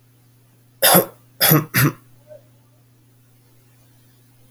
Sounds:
Cough